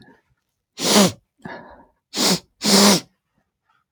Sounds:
Sniff